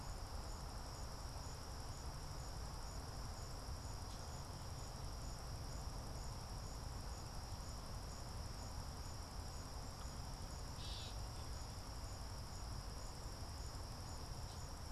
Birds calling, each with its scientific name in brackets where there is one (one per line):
Gray Catbird (Dumetella carolinensis)